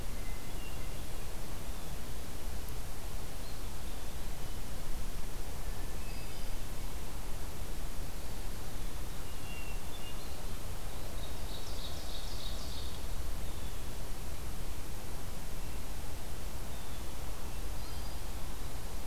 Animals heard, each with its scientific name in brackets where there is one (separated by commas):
Ovenbird (Seiurus aurocapilla), Blue Jay (Cyanocitta cristata), Hermit Thrush (Catharus guttatus)